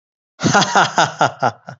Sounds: Laughter